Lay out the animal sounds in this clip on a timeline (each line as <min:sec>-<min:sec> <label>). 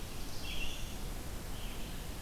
0:00.0-0:01.1 Black-throated Blue Warbler (Setophaga caerulescens)
0:00.0-0:02.2 Red-eyed Vireo (Vireo olivaceus)